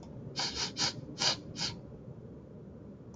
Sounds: Sniff